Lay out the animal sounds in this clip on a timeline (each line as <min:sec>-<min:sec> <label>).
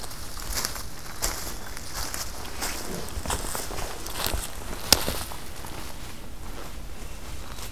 0:00.8-0:02.0 Black-capped Chickadee (Poecile atricapillus)